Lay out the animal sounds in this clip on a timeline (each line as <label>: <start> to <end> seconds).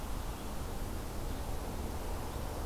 Red-eyed Vireo (Vireo olivaceus): 0.0 to 2.7 seconds